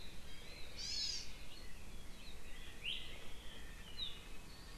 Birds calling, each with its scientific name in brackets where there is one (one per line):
Hawaii Amakihi (Chlorodrepanis virens)